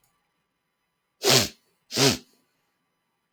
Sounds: Sniff